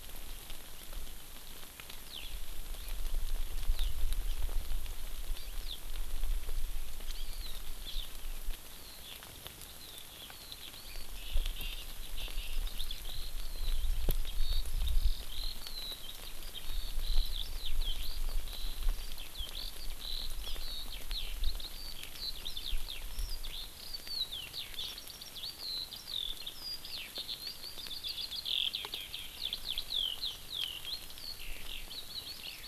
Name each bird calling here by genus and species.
Alauda arvensis, Chlorodrepanis virens